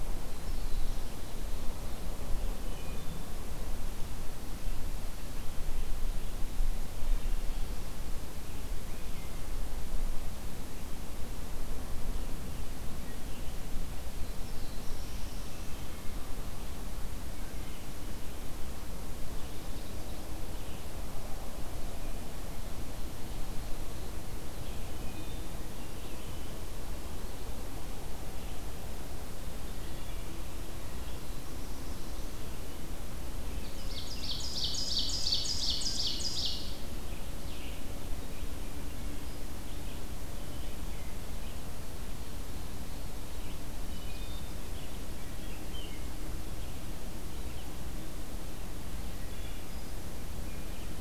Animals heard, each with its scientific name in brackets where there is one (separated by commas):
Wood Thrush (Hylocichla mustelina), Black-throated Blue Warbler (Setophaga caerulescens), Ovenbird (Seiurus aurocapilla)